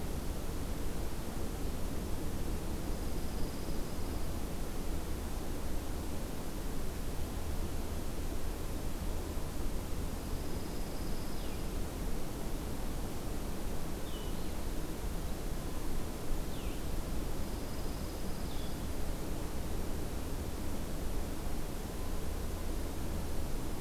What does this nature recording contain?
Dark-eyed Junco, Blue-headed Vireo